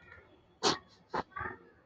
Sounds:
Sniff